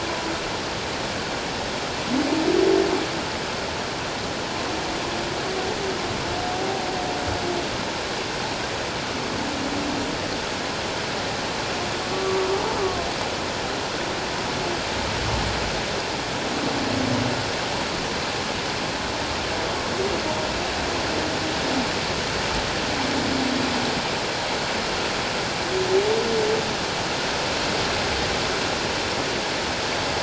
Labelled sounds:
12.1	12.5	humpback whale, 1.1 to 1.2 kHz
12.8	13.1	humpback whale, 1.0 to 1.2 kHz

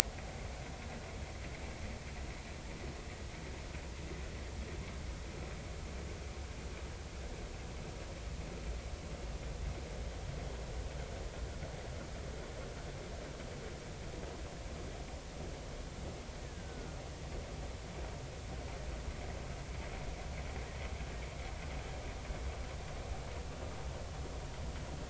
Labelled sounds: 16.4	16.9	killer whale, Bigg's (transient), 1.4 to 1.9 kHz

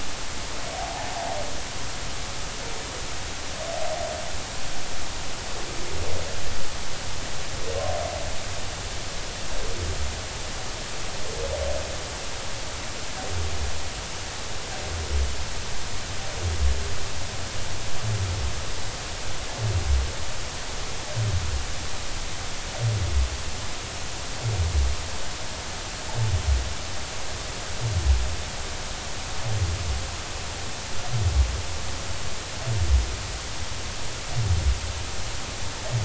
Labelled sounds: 0.7	1.1	humpback whale, 0.80 to 0.96 kHz

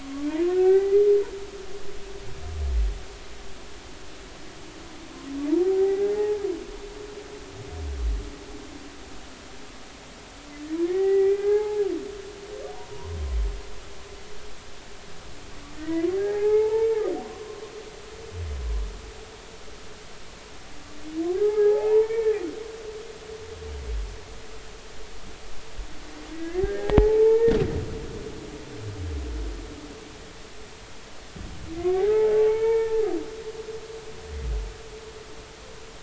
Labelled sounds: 0.0	1.0	humpback whale, 0.80 to 2.7 kHz
5.6	6.4	humpback whale, 0.80 to 2.0 kHz
10.8	11.8	humpback whale, 0.80 to 2.5 kHz
12.7	13.2	humpback whale, 0.90 to 1.1 kHz
15.8	16.9	humpback whale, 0.80 to 2.2 kHz
17.2	17.6	humpback whale, 0.93 to 1.1 kHz
21.4	22.4	humpback whale, 0.80 to 2.3 kHz
26.3	27.5	humpback whale, 0.80 to 2.1 kHz
31.7	33.0	humpback whale, 0.80 to 2.3 kHz

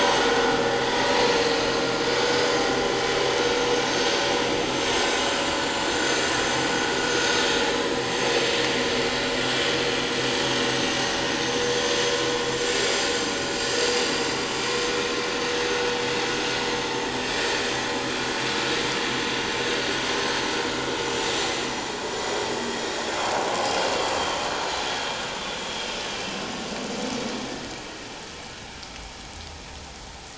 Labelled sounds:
5.9	6.2	vessel noise, 6.2 to 6.3 kHz
8.0	8.3	vessel noise, 6.1 to 6.2 kHz
22.9	23.7	vessel noise, 6.4 to 7.5 kHz
24.2	25.2	vessel noise, 3.1 to 4.2 kHz

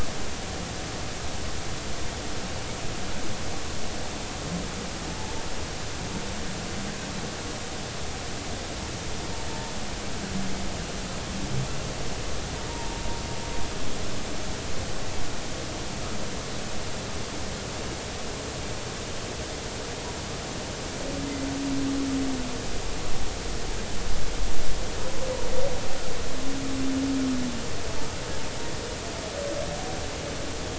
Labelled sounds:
5.1	5.4	humpback whale, 0.83 to 0.93 kHz
12.7	13.0	humpback whale, 0.90 to 0.99 kHz

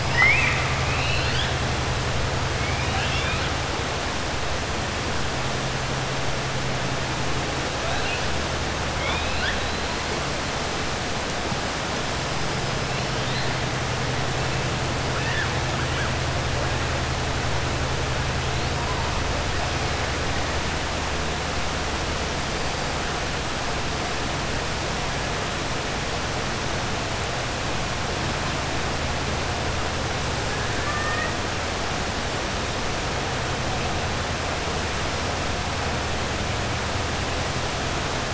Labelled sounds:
0.0	1.5	killer whale, 0.94 to 4.8 kHz
2.6	3.4	killer whale, 0.78 to 4.1 kHz
8.9	9.8	killer whale, 0.63 to 5.0 kHz
15.1	15.5	killer whale, 1.2 to 3.7 kHz
30.7	31.3	killer whale, 1.2 to 2.5 kHz

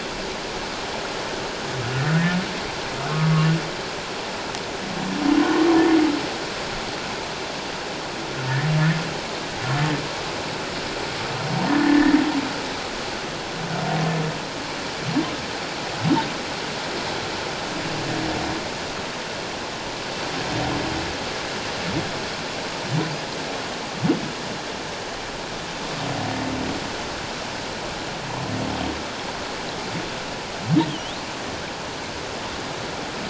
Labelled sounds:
3.1	3.5	humpback whale, 1.0 to 1.2 kHz
11.7	12.1	humpback whale, 1.7 to 1.9 kHz
30.9	31.2	humpback whale, 2.8 to 3.8 kHz

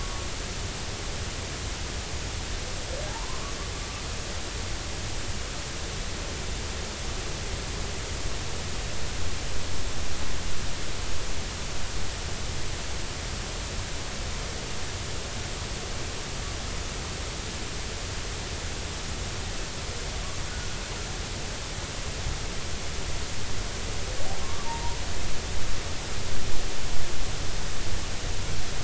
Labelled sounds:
3.1	3.5	humpback whale, 0.80 to 1.2 kHz
24.4	25.0	humpback whale, 0.86 to 1.2 kHz

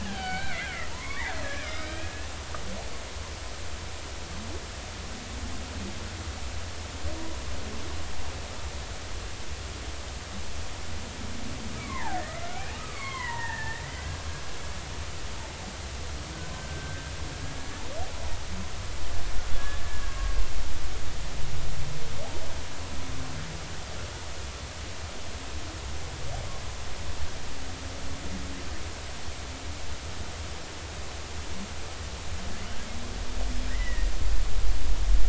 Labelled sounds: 0.0	2.3	killer whale, Bigg's (transient), 0.80 to 5.2 kHz
11.8	12.5	killer whale, Bigg's (transient), 0.80 to 2.4 kHz
12.8	14.2	killer whale, Bigg's (transient), 0.83 to 4.6 kHz
16.5	17.0	killer whale, Bigg's (transient), 1.5 to 1.6 kHz
19.8	20.4	killer whale, Bigg's (transient), 1.0 to 1.8 kHz
33.7	34.1	killer whale, Bigg's (transient), 1.8 to 2.1 kHz

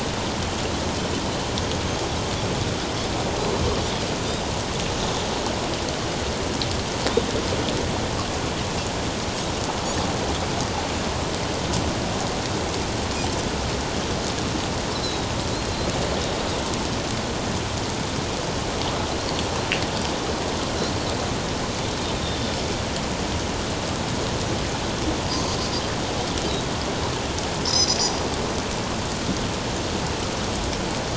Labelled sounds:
15.0	15.3	Pacific white-sided dolphin, 3.8 to 4.1 kHz
19.1	19.5	Pacific white-sided dolphin, 3.9 to 4.8 kHz
22.2	22.5	Pacific white-sided dolphin, 3.5 to 3.7 kHz
25.2	25.6	Pacific white-sided dolphin, 4.5 to 5.1 kHz
27.6	28.0	Pacific white-sided dolphin, 4.8 to 7.2 kHz

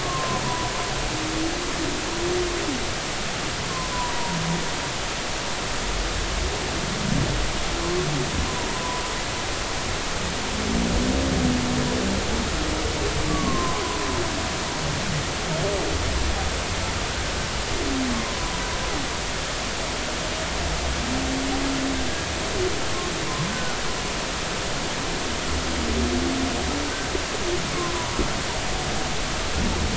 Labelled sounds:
0.0	0.7	humpback whale, 0.93 to 1.2 kHz
3.9	4.4	humpback whale, 0.90 to 1.1 kHz
8.8	9.0	humpback whale, 0.93 to 1.1 kHz
13.3	13.8	humpback whale, 0.96 to 1.2 kHz
18.1	18.5	humpback whale, 0.96 to 1.1 kHz
23.5	23.8	humpback whale, 1.2 to 1.6 kHz
27.9	28.2	humpback whale, 0.93 to 1.0 kHz

